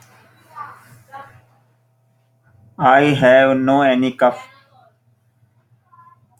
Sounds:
Cough